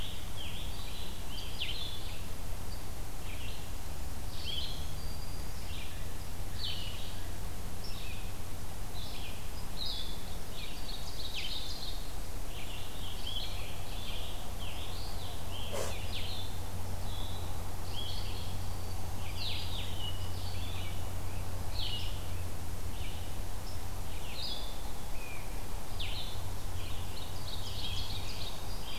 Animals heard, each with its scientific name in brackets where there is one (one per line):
Scarlet Tanager (Piranga olivacea)
Blue-headed Vireo (Vireo solitarius)
Ovenbird (Seiurus aurocapilla)
Black-throated Green Warbler (Setophaga virens)